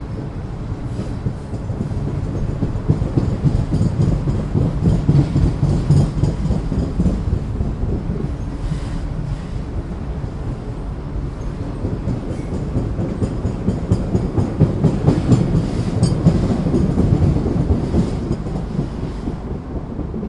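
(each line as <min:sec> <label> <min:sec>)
0:00.0 A train is traveling. 0:20.3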